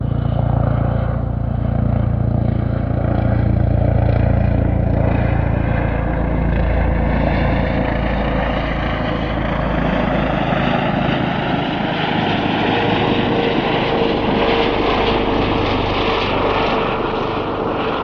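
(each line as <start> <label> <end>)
0.0 A helicopter flies overhead, approaching closer. 18.0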